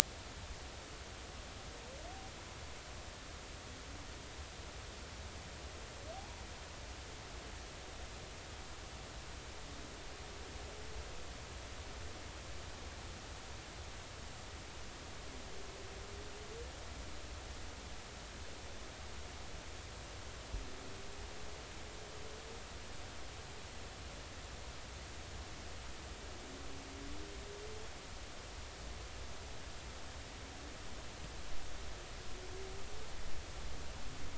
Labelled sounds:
6.1	6.4	humpback whale, 0.80 to 0.99 kHz

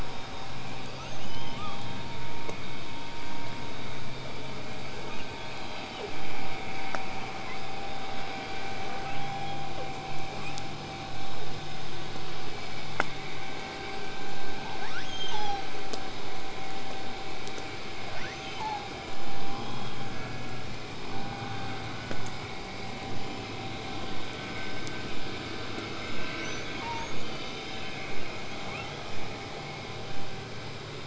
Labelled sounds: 0.8	1.9	killer whale, southern resident, L pod, call S02iii, 0.73 to 8.0 kHz
14.8	15.7	killer whale, southern resident, L pod, call S02iii, 0.55 to 8.0 kHz
18.1	18.9	killer whale, southern resident, L pod, call S02iii, 0.73 to 8.0 kHz
21.1	26.1	vessel noise, 0 to 8.0 kHz
26.3	27.1	killer whale, southern resident, L pod, call S02iii, 0.68 to 8.0 kHz
27.0	28.1	killer whale, southern resident, whistle, 2.9 to 8.0 kHz
28.7	28.9	killer whale, southern resident, 0.98 to 8.0 kHz

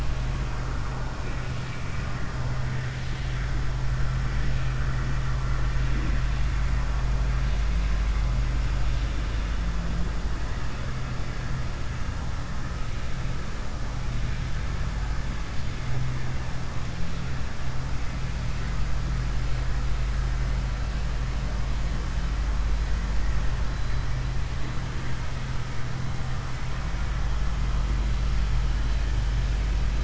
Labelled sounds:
1.2	2.1	vessel noise, 1.5 to 3.8 kHz

